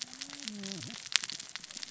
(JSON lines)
{"label": "biophony, cascading saw", "recorder": "SoundTrap 600 or HydroMoth"}